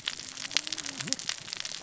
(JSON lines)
{"label": "biophony, cascading saw", "recorder": "SoundTrap 600 or HydroMoth"}